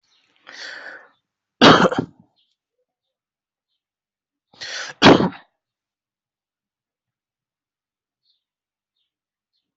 {"expert_labels": [{"quality": "good", "cough_type": "dry", "dyspnea": false, "wheezing": false, "stridor": false, "choking": false, "congestion": false, "nothing": true, "diagnosis": "upper respiratory tract infection", "severity": "mild"}], "age": 28, "gender": "male", "respiratory_condition": false, "fever_muscle_pain": false, "status": "COVID-19"}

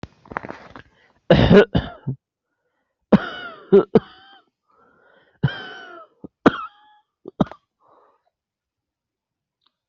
{"expert_labels": [{"quality": "ok", "cough_type": "dry", "dyspnea": false, "wheezing": true, "stridor": false, "choking": false, "congestion": false, "nothing": false, "diagnosis": "obstructive lung disease", "severity": "mild"}], "age": 27, "gender": "female", "respiratory_condition": false, "fever_muscle_pain": false, "status": "symptomatic"}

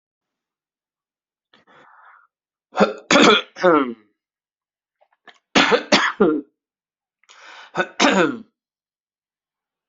{"expert_labels": [{"quality": "good", "cough_type": "dry", "dyspnea": false, "wheezing": false, "stridor": false, "choking": false, "congestion": true, "nothing": false, "diagnosis": "upper respiratory tract infection", "severity": "mild"}], "age": 55, "gender": "male", "respiratory_condition": true, "fever_muscle_pain": false, "status": "symptomatic"}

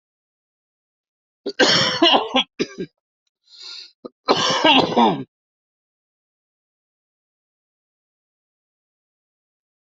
{"expert_labels": [{"quality": "good", "cough_type": "dry", "dyspnea": false, "wheezing": false, "stridor": false, "choking": false, "congestion": false, "nothing": true, "diagnosis": "lower respiratory tract infection", "severity": "severe"}], "age": 47, "gender": "male", "respiratory_condition": false, "fever_muscle_pain": false, "status": "healthy"}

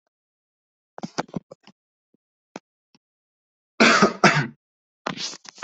{"expert_labels": [{"quality": "ok", "cough_type": "unknown", "dyspnea": false, "wheezing": false, "stridor": false, "choking": false, "congestion": false, "nothing": true, "diagnosis": "healthy cough", "severity": "pseudocough/healthy cough"}]}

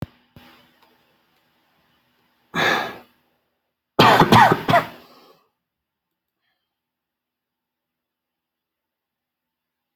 {"expert_labels": [{"quality": "poor", "cough_type": "dry", "dyspnea": false, "wheezing": false, "stridor": false, "choking": false, "congestion": false, "nothing": true, "diagnosis": "COVID-19", "severity": "mild"}, {"quality": "ok", "cough_type": "dry", "dyspnea": false, "wheezing": false, "stridor": false, "choking": false, "congestion": false, "nothing": true, "diagnosis": "COVID-19", "severity": "mild"}, {"quality": "good", "cough_type": "wet", "dyspnea": false, "wheezing": false, "stridor": false, "choking": false, "congestion": false, "nothing": true, "diagnosis": "upper respiratory tract infection", "severity": "mild"}, {"quality": "ok", "cough_type": "dry", "dyspnea": false, "wheezing": false, "stridor": false, "choking": false, "congestion": false, "nothing": true, "diagnosis": "upper respiratory tract infection", "severity": "mild"}], "age": 26, "gender": "male", "respiratory_condition": true, "fever_muscle_pain": true, "status": "symptomatic"}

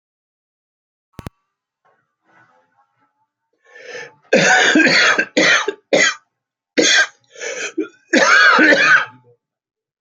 {"expert_labels": [{"quality": "good", "cough_type": "dry", "dyspnea": false, "wheezing": false, "stridor": false, "choking": false, "congestion": false, "nothing": true, "diagnosis": "COVID-19", "severity": "mild"}], "gender": "male", "respiratory_condition": true, "fever_muscle_pain": true, "status": "COVID-19"}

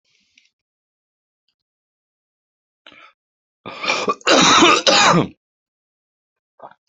{"expert_labels": [{"quality": "ok", "cough_type": "unknown", "dyspnea": false, "wheezing": false, "stridor": false, "choking": false, "congestion": false, "nothing": true, "diagnosis": "upper respiratory tract infection", "severity": "mild"}], "age": 42, "gender": "male", "respiratory_condition": false, "fever_muscle_pain": false, "status": "healthy"}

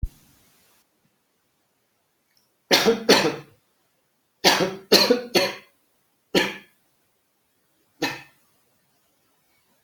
{"expert_labels": [{"quality": "ok", "cough_type": "dry", "dyspnea": false, "wheezing": false, "stridor": false, "choking": false, "congestion": false, "nothing": true, "diagnosis": "lower respiratory tract infection", "severity": "mild"}], "age": 38, "gender": "male", "respiratory_condition": false, "fever_muscle_pain": false, "status": "healthy"}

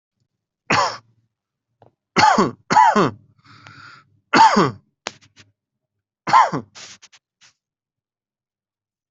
{"expert_labels": [{"quality": "ok", "cough_type": "dry", "dyspnea": false, "wheezing": false, "stridor": false, "choking": false, "congestion": false, "nothing": true, "diagnosis": "COVID-19", "severity": "mild"}]}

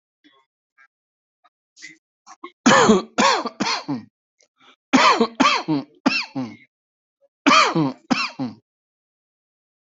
{"expert_labels": [{"quality": "ok", "cough_type": "dry", "dyspnea": false, "wheezing": false, "stridor": false, "choking": false, "congestion": false, "nothing": true, "diagnosis": "COVID-19", "severity": "mild"}, {"quality": "ok", "cough_type": "dry", "dyspnea": false, "wheezing": false, "stridor": false, "choking": false, "congestion": false, "nothing": true, "diagnosis": "COVID-19", "severity": "mild"}, {"quality": "good", "cough_type": "dry", "dyspnea": false, "wheezing": false, "stridor": false, "choking": false, "congestion": false, "nothing": true, "diagnosis": "upper respiratory tract infection", "severity": "severe"}, {"quality": "good", "cough_type": "dry", "dyspnea": false, "wheezing": false, "stridor": false, "choking": false, "congestion": false, "nothing": true, "diagnosis": "upper respiratory tract infection", "severity": "mild"}]}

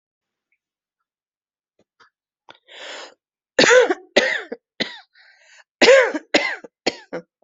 {"expert_labels": [{"quality": "good", "cough_type": "dry", "dyspnea": false, "wheezing": true, "stridor": false, "choking": false, "congestion": false, "nothing": false, "diagnosis": "obstructive lung disease", "severity": "mild"}], "age": 43, "gender": "female", "respiratory_condition": false, "fever_muscle_pain": false, "status": "symptomatic"}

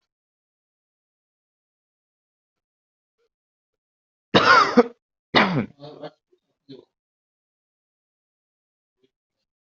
{"expert_labels": [{"quality": "good", "cough_type": "unknown", "dyspnea": false, "wheezing": false, "stridor": false, "choking": false, "congestion": false, "nothing": true, "diagnosis": "healthy cough", "severity": "pseudocough/healthy cough"}], "age": 24, "gender": "female", "respiratory_condition": false, "fever_muscle_pain": false, "status": "COVID-19"}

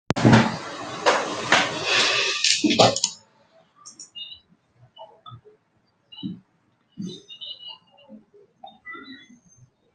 {"expert_labels": [{"quality": "no cough present", "dyspnea": false, "wheezing": false, "stridor": false, "choking": false, "congestion": false, "nothing": false}], "age": 45, "gender": "female", "respiratory_condition": false, "fever_muscle_pain": false, "status": "symptomatic"}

